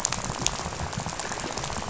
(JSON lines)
{"label": "biophony, rattle", "recorder": "SoundTrap 500"}